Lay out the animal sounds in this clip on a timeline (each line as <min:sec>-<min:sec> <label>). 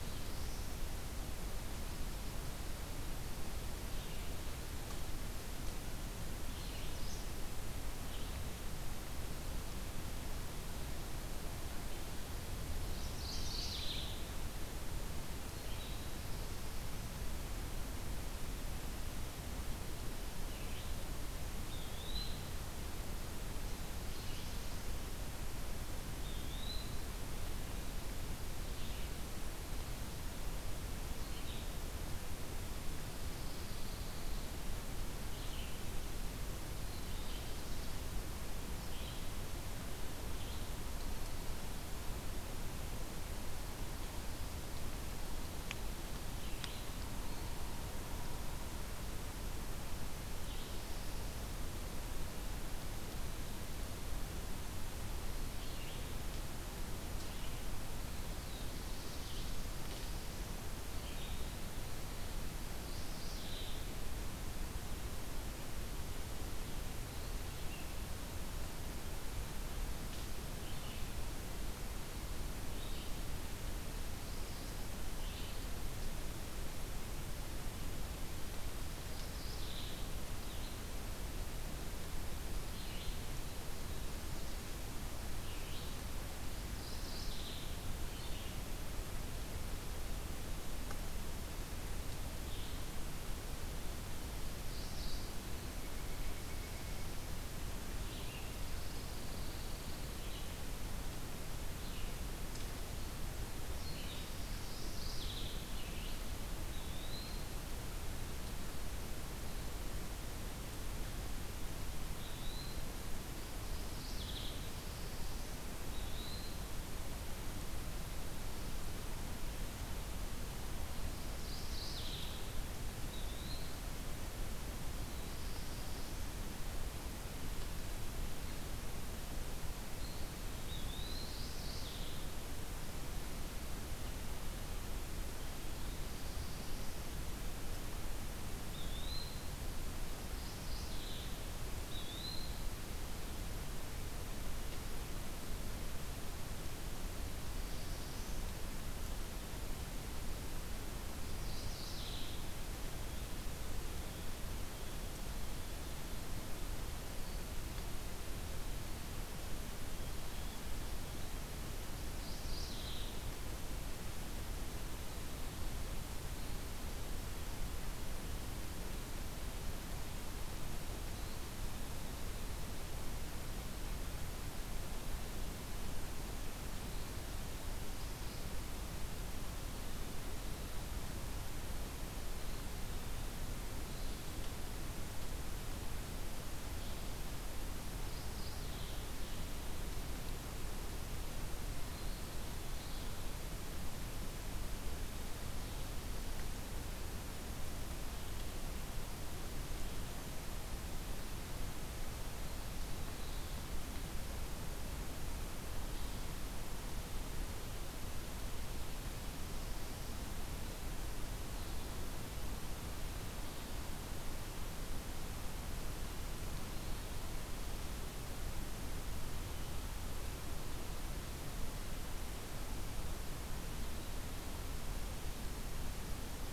0:00.0-0:00.8 Black-throated Blue Warbler (Setophaga caerulescens)
0:03.9-0:59.7 Red-eyed Vireo (Vireo olivaceus)
0:06.8-0:07.3 Mourning Warbler (Geothlypis philadelphia)
0:12.6-0:14.3 Mourning Warbler (Geothlypis philadelphia)
0:21.6-0:22.6 Eastern Wood-Pewee (Contopus virens)
0:23.5-0:25.0 Black-throated Blue Warbler (Setophaga caerulescens)
0:26.2-0:27.0 Eastern Wood-Pewee (Contopus virens)
0:33.1-0:34.4 Pine Warbler (Setophaga pinus)
0:57.9-0:59.8 Black-throated Blue Warbler (Setophaga caerulescens)
1:00.7-1:01.4 Red-eyed Vireo (Vireo olivaceus)
1:02.7-1:03.9 Mourning Warbler (Geothlypis philadelphia)
1:07.0-1:46.3 Red-eyed Vireo (Vireo olivaceus)
1:19.1-1:20.0 Mourning Warbler (Geothlypis philadelphia)
1:26.7-1:27.9 Mourning Warbler (Geothlypis philadelphia)
1:34.6-1:35.4 Mourning Warbler (Geothlypis philadelphia)
1:35.5-1:37.1 Northern Flicker (Colaptes auratus)
1:44.6-1:45.6 Mourning Warbler (Geothlypis philadelphia)
1:46.6-1:47.5 Eastern Wood-Pewee (Contopus virens)
1:52.1-1:52.9 Eastern Wood-Pewee (Contopus virens)
1:53.4-1:54.7 Mourning Warbler (Geothlypis philadelphia)
1:55.7-1:56.8 Eastern Wood-Pewee (Contopus virens)
2:01.3-2:02.4 Mourning Warbler (Geothlypis philadelphia)
2:03.0-2:03.8 Eastern Wood-Pewee (Contopus virens)
2:04.6-2:06.4 Black-throated Blue Warbler (Setophaga caerulescens)
2:10.5-2:11.4 Eastern Wood-Pewee (Contopus virens)
2:11.2-2:12.2 Mourning Warbler (Geothlypis philadelphia)
2:15.7-2:17.1 Black-throated Blue Warbler (Setophaga caerulescens)
2:18.5-2:19.5 Eastern Wood-Pewee (Contopus virens)
2:20.1-2:21.4 Mourning Warbler (Geothlypis philadelphia)
2:21.7-2:22.7 Eastern Wood-Pewee (Contopus virens)
2:27.4-2:28.5 Black-throated Blue Warbler (Setophaga caerulescens)
2:31.3-2:32.3 Mourning Warbler (Geothlypis philadelphia)
2:42.2-2:43.2 Mourning Warbler (Geothlypis philadelphia)
3:08.0-3:09.1 Mourning Warbler (Geothlypis philadelphia)